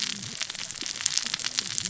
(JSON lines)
{"label": "biophony, cascading saw", "recorder": "SoundTrap 600 or HydroMoth"}